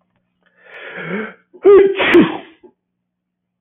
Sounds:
Sneeze